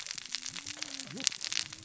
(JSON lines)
{"label": "biophony, cascading saw", "recorder": "SoundTrap 600 or HydroMoth"}